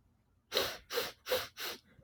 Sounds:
Sniff